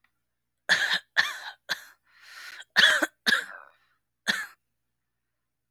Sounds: Cough